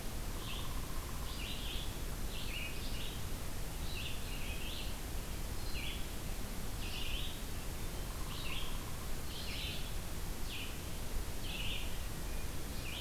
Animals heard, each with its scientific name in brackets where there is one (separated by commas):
Red-eyed Vireo (Vireo olivaceus), Downy Woodpecker (Dryobates pubescens), Hermit Thrush (Catharus guttatus)